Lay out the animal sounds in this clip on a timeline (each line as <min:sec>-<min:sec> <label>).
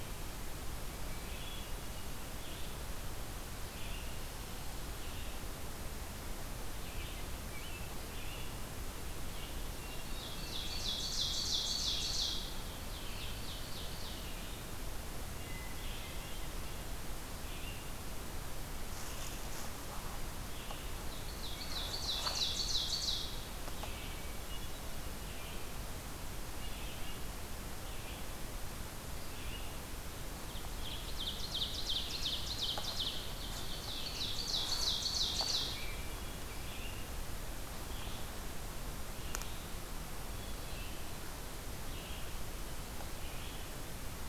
0:02.3-0:09.5 Red-eyed Vireo (Vireo olivaceus)
0:09.5-0:10.9 Hermit Thrush (Catharus guttatus)
0:10.0-0:14.4 Ovenbird (Seiurus aurocapilla)
0:11.6-0:21.0 Red-eyed Vireo (Vireo olivaceus)
0:15.2-0:16.4 Hermit Thrush (Catharus guttatus)
0:21.2-0:23.6 Ovenbird (Seiurus aurocapilla)
0:23.7-0:24.9 Hermit Thrush (Catharus guttatus)
0:23.8-0:29.8 Red-eyed Vireo (Vireo olivaceus)
0:30.4-0:36.2 Ovenbird (Seiurus aurocapilla)
0:35.6-0:36.7 Hermit Thrush (Catharus guttatus)
0:36.4-0:44.1 Red-eyed Vireo (Vireo olivaceus)
0:40.1-0:41.1 Hermit Thrush (Catharus guttatus)